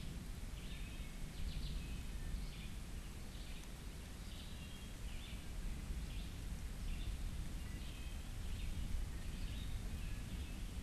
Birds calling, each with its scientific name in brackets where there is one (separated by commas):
Wood Thrush (Hylocichla mustelina), Red-eyed Vireo (Vireo olivaceus)